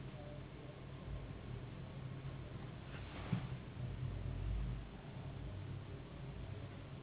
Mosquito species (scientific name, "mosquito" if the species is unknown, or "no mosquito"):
Anopheles gambiae s.s.